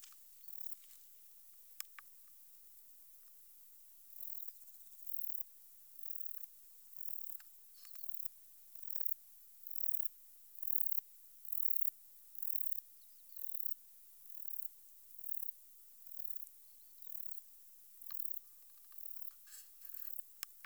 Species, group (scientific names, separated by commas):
Baetica ustulata, Orthoptera